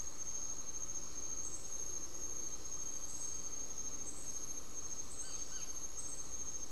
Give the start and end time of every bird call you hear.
[4.97, 6.17] unidentified bird

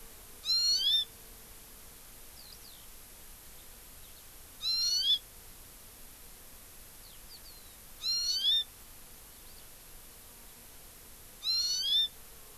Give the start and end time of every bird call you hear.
[0.45, 1.15] Hawaii Amakihi (Chlorodrepanis virens)
[2.35, 2.85] Eurasian Skylark (Alauda arvensis)
[3.95, 4.35] Eurasian Skylark (Alauda arvensis)
[4.55, 5.25] Hawaii Amakihi (Chlorodrepanis virens)
[6.95, 7.75] Eurasian Skylark (Alauda arvensis)
[7.95, 8.65] Hawaii Amakihi (Chlorodrepanis virens)
[9.25, 9.75] Eurasian Skylark (Alauda arvensis)
[11.35, 12.15] Hawaii Amakihi (Chlorodrepanis virens)

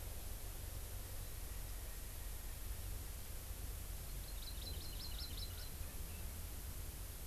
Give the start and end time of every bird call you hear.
[4.03, 5.73] Hawaii Amakihi (Chlorodrepanis virens)

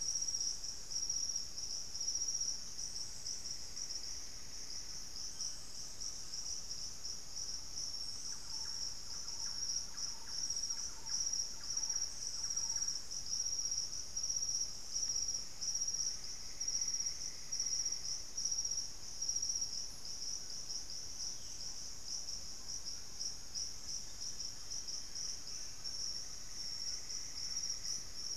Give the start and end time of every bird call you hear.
[0.00, 0.56] Plain-winged Antshrike (Thamnophilus schistaceus)
[0.00, 28.36] Great Antshrike (Taraba major)
[3.16, 4.96] Plumbeous Antbird (Myrmelastes hyperythrus)
[5.16, 6.86] unidentified bird
[8.06, 13.16] Thrush-like Wren (Campylorhynchus turdinus)
[15.96, 18.36] Plumbeous Antbird (Myrmelastes hyperythrus)
[21.26, 21.66] unidentified bird
[23.76, 26.16] unidentified bird
[26.16, 28.36] Plumbeous Antbird (Myrmelastes hyperythrus)

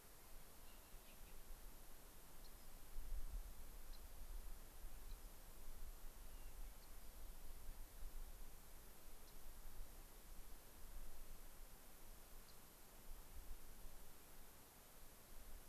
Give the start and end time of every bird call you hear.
[2.31, 2.81] Rock Wren (Salpinctes obsoletus)
[3.81, 4.11] Rock Wren (Salpinctes obsoletus)
[6.21, 7.11] Hermit Thrush (Catharus guttatus)
[6.71, 7.61] Rock Wren (Salpinctes obsoletus)
[9.21, 9.41] Rock Wren (Salpinctes obsoletus)
[12.41, 12.71] Rock Wren (Salpinctes obsoletus)

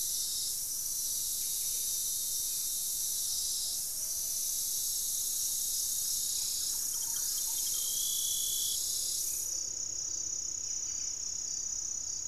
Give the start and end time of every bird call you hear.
[0.00, 12.27] Buff-breasted Wren (Cantorchilus leucotis)
[0.85, 2.05] Gray-fronted Dove (Leptotila rufaxilla)
[2.35, 12.27] Black-faced Antthrush (Formicarius analis)
[3.45, 4.65] Plumbeous Pigeon (Patagioenas plumbea)
[6.15, 8.25] Thrush-like Wren (Campylorhynchus turdinus)

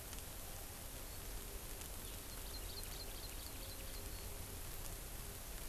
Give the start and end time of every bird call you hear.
[2.32, 4.02] Hawaii Amakihi (Chlorodrepanis virens)

